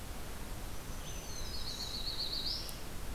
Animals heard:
Black-throated Green Warbler (Setophaga virens), Black-throated Blue Warbler (Setophaga caerulescens)

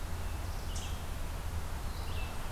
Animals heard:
Eastern Chipmunk (Tamias striatus), Red-eyed Vireo (Vireo olivaceus)

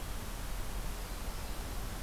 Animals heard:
Black-throated Blue Warbler (Setophaga caerulescens)

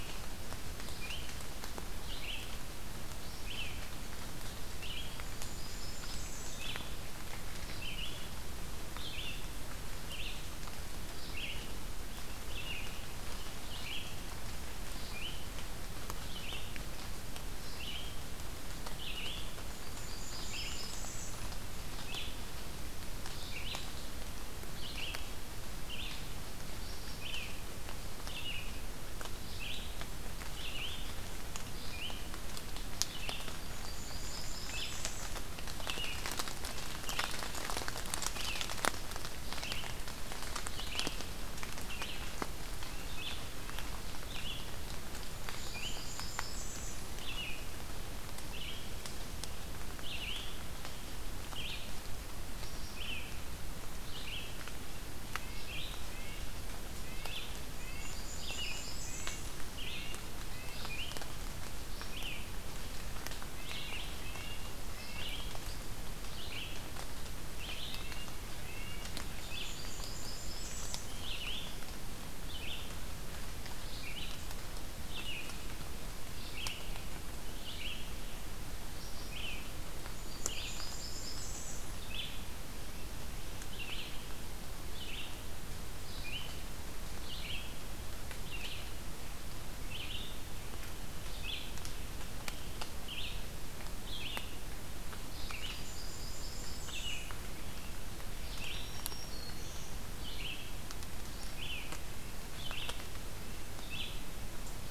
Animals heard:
Red-eyed Vireo (Vireo olivaceus), Red-breasted Nuthatch (Sitta canadensis), Blackburnian Warbler (Setophaga fusca), Black-throated Green Warbler (Setophaga virens)

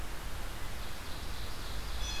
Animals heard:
Ovenbird (Seiurus aurocapilla), Red-eyed Vireo (Vireo olivaceus)

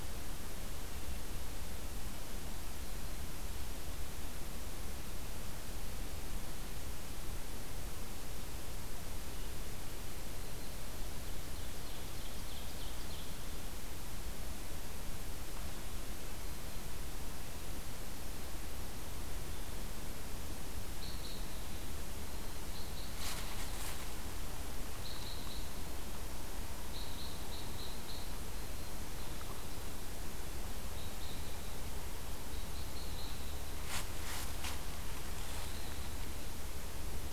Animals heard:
Black-throated Green Warbler (Setophaga virens), Ovenbird (Seiurus aurocapilla), Red Crossbill (Loxia curvirostra)

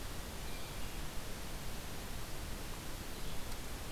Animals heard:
Hermit Thrush (Catharus guttatus), Yellow-bellied Flycatcher (Empidonax flaviventris)

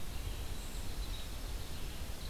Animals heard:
Dark-eyed Junco (Junco hyemalis), unidentified call, Red-eyed Vireo (Vireo olivaceus)

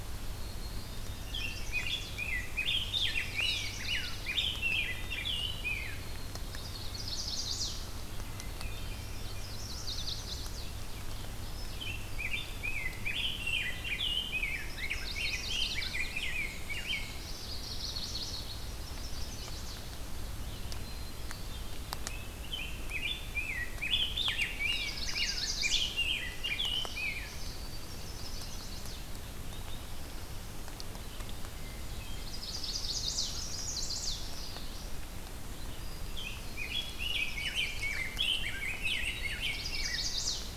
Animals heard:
Black-and-white Warbler (Mniotilta varia), Hermit Thrush (Catharus guttatus), Black-capped Chickadee (Poecile atricapillus), Chestnut-sided Warbler (Setophaga pensylvanica), Rose-breasted Grosbeak (Pheucticus ludovicianus), Ovenbird (Seiurus aurocapilla), Common Yellowthroat (Geothlypis trichas)

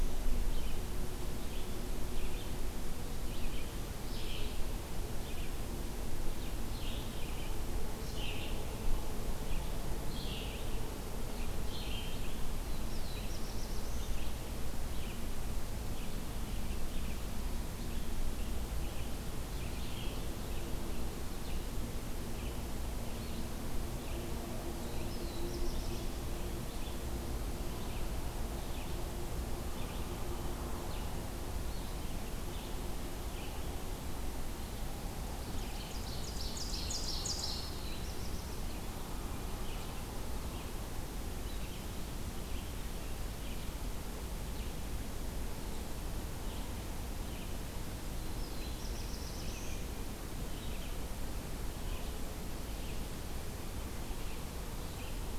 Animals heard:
Ovenbird (Seiurus aurocapilla), Red-eyed Vireo (Vireo olivaceus), Black-throated Blue Warbler (Setophaga caerulescens)

